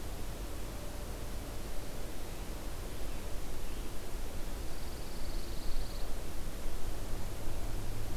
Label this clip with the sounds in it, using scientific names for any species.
Setophaga pinus